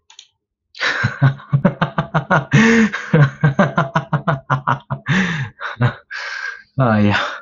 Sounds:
Laughter